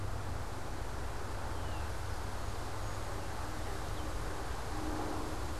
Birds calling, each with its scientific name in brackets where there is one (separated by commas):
unidentified bird, Song Sparrow (Melospiza melodia)